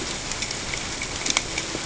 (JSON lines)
{"label": "ambient", "recorder": "HydroMoth"}